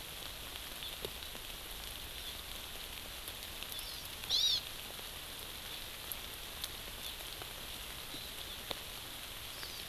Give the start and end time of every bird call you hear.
[3.70, 4.00] Hawaii Amakihi (Chlorodrepanis virens)
[4.30, 4.60] Hawaii Amakihi (Chlorodrepanis virens)
[7.00, 7.20] Hawaii Amakihi (Chlorodrepanis virens)
[9.50, 9.80] Hawaii Amakihi (Chlorodrepanis virens)

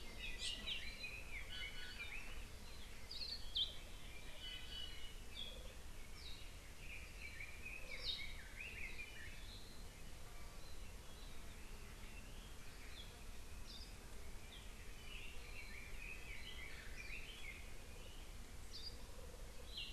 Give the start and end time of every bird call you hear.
[1.43, 1.93] Iiwi (Drepanis coccinea)
[3.13, 3.43] Hawaii Akepa (Loxops coccineus)
[4.43, 5.23] Iiwi (Drepanis coccinea)
[6.73, 9.53] Red-billed Leiothrix (Leiothrix lutea)
[14.93, 17.83] Red-billed Leiothrix (Leiothrix lutea)

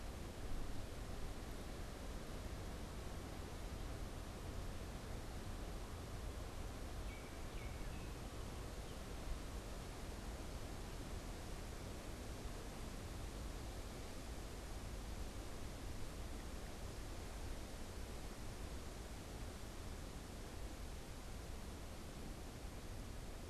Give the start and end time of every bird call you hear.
[6.83, 8.63] Baltimore Oriole (Icterus galbula)

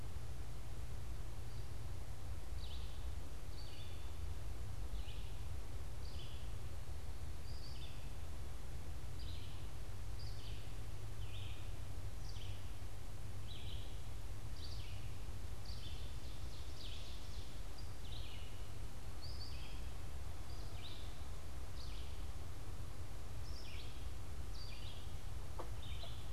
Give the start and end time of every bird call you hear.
[2.28, 26.32] Red-eyed Vireo (Vireo olivaceus)
[15.58, 17.68] Ovenbird (Seiurus aurocapilla)

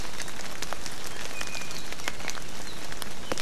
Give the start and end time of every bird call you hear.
[1.30, 2.40] Iiwi (Drepanis coccinea)

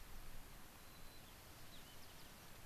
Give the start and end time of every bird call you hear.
[0.78, 2.58] White-crowned Sparrow (Zonotrichia leucophrys)

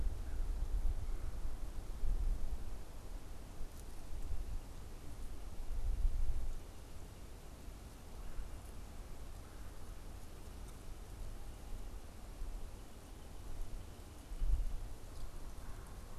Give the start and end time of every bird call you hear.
[0.00, 0.61] American Crow (Corvus brachyrhynchos)
[0.00, 1.51] Red-bellied Woodpecker (Melanerpes carolinus)
[7.81, 9.91] Red-bellied Woodpecker (Melanerpes carolinus)

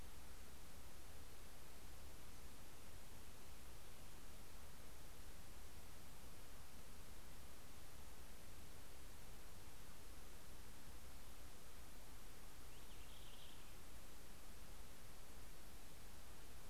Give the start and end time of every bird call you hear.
[11.74, 14.94] Purple Finch (Haemorhous purpureus)

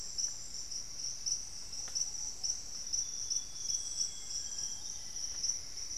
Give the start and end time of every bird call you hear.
[0.00, 5.98] Ruddy Pigeon (Patagioenas subvinacea)
[2.15, 5.98] Hauxwell's Thrush (Turdus hauxwelli)
[2.75, 5.55] Amazonian Grosbeak (Cyanoloxia rothschildii)
[4.65, 5.98] Plumbeous Antbird (Myrmelastes hyperythrus)

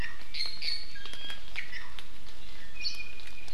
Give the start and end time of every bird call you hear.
[0.00, 2.00] Iiwi (Drepanis coccinea)
[2.40, 3.50] Iiwi (Drepanis coccinea)

